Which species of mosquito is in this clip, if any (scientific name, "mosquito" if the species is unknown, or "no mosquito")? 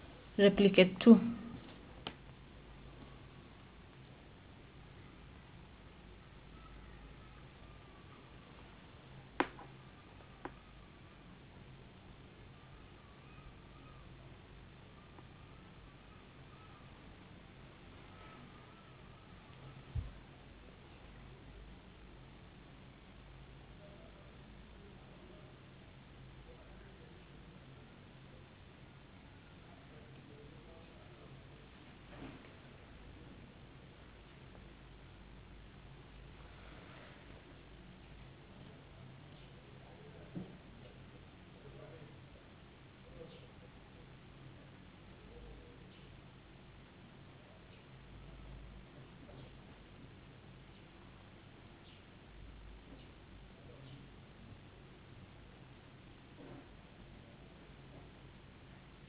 no mosquito